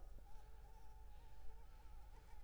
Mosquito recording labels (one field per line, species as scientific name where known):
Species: Anopheles gambiae s.l.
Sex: female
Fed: unfed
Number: one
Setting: cup